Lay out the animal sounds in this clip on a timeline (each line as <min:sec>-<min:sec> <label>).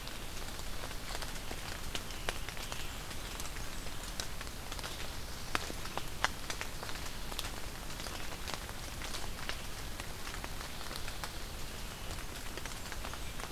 0:04.4-0:05.9 Black-throated Blue Warbler (Setophaga caerulescens)
0:12.0-0:13.5 Blackburnian Warbler (Setophaga fusca)